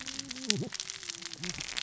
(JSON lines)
{"label": "biophony, cascading saw", "recorder": "SoundTrap 600 or HydroMoth"}